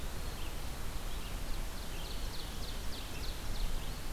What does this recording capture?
Red-eyed Vireo, Ovenbird, Eastern Wood-Pewee